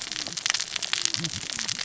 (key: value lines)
label: biophony, cascading saw
recorder: SoundTrap 600 or HydroMoth